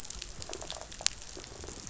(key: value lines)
label: biophony
recorder: SoundTrap 500